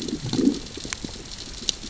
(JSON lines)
{"label": "biophony, growl", "recorder": "SoundTrap 600 or HydroMoth"}